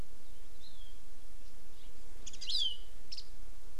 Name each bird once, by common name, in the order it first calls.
Warbling White-eye, Hawaii Amakihi